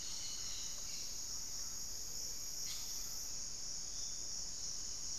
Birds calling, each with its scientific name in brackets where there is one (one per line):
Hauxwell's Thrush (Turdus hauxwelli)
Cobalt-winged Parakeet (Brotogeris cyanoptera)